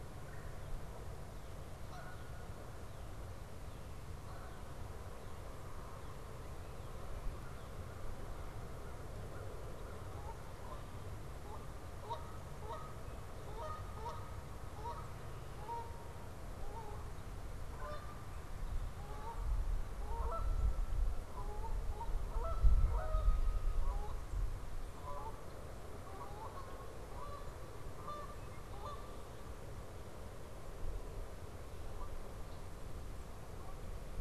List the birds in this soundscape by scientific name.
Melanerpes carolinus, Branta canadensis, Corvus brachyrhynchos